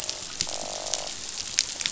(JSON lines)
{"label": "biophony, croak", "recorder": "SoundTrap 500"}